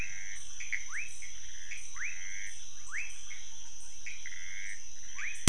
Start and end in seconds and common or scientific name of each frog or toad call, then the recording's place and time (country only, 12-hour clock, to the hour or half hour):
0.0	2.6	Pithecopus azureus
0.0	3.1	rufous frog
4.0	5.4	Pithecopus azureus
5.1	5.4	rufous frog
Brazil, 1am